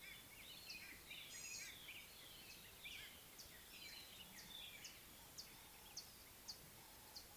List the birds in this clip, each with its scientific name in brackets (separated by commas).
Gray-backed Camaroptera (Camaroptera brevicaudata), Mariqua Sunbird (Cinnyris mariquensis)